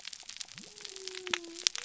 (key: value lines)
label: biophony
recorder: SoundTrap 300